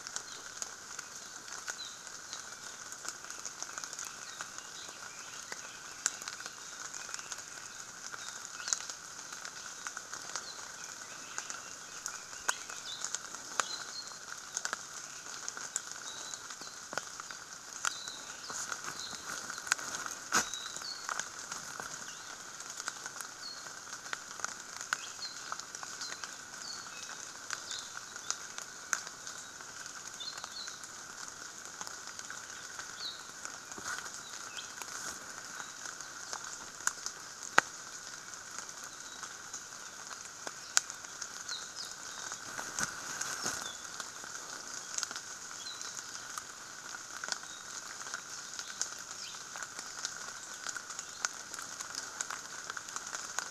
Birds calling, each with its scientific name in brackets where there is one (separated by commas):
Red-billed Leiothrix (Leiothrix lutea), Apapane (Himatione sanguinea)